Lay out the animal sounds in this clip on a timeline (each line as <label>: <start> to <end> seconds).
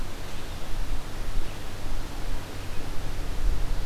Red-eyed Vireo (Vireo olivaceus): 0.0 to 3.9 seconds